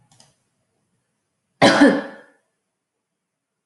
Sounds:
Cough